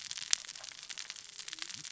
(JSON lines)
{"label": "biophony, cascading saw", "recorder": "SoundTrap 600 or HydroMoth"}